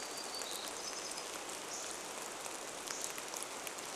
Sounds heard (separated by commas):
rain, Hammond's Flycatcher song, Hermit Warbler song